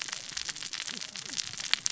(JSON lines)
{"label": "biophony, cascading saw", "recorder": "SoundTrap 600 or HydroMoth"}